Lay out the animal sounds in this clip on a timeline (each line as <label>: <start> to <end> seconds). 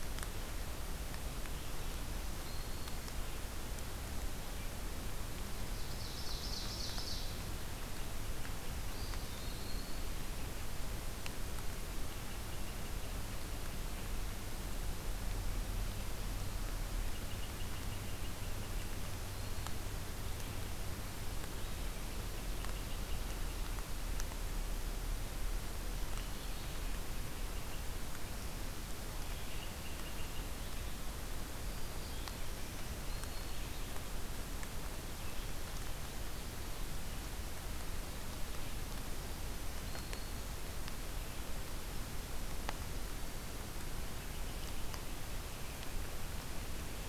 Black-throated Green Warbler (Setophaga virens): 1.7 to 3.3 seconds
Ovenbird (Seiurus aurocapilla): 5.6 to 7.7 seconds
Eastern Wood-Pewee (Contopus virens): 8.9 to 10.4 seconds
unidentified call: 12.0 to 13.3 seconds
unidentified call: 17.0 to 19.1 seconds
Eastern Wood-Pewee (Contopus virens): 18.8 to 19.9 seconds
unidentified call: 22.0 to 23.5 seconds
unidentified call: 29.1 to 30.5 seconds
Black-throated Green Warbler (Setophaga virens): 31.4 to 33.7 seconds
Black-throated Green Warbler (Setophaga virens): 39.2 to 40.5 seconds
unidentified call: 43.8 to 45.3 seconds